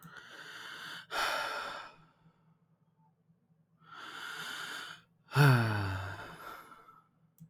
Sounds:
Sigh